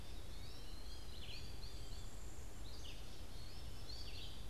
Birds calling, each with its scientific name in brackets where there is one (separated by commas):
American Goldfinch (Spinus tristis), Eastern Wood-Pewee (Contopus virens), Black-capped Chickadee (Poecile atricapillus), Red-eyed Vireo (Vireo olivaceus)